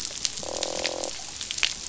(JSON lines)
{"label": "biophony, croak", "recorder": "SoundTrap 500"}